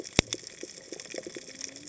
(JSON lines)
{"label": "biophony, cascading saw", "recorder": "HydroMoth"}